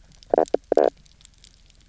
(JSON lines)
{"label": "biophony, knock croak", "recorder": "SoundTrap 300"}